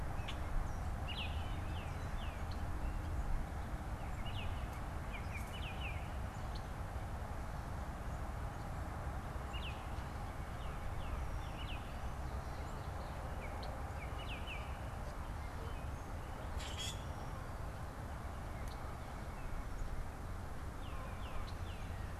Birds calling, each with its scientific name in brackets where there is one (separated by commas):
Wood Thrush (Hylocichla mustelina), Common Grackle (Quiscalus quiscula), Tufted Titmouse (Baeolophus bicolor), Baltimore Oriole (Icterus galbula), White-breasted Nuthatch (Sitta carolinensis)